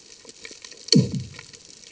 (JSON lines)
{"label": "anthrophony, bomb", "recorder": "HydroMoth"}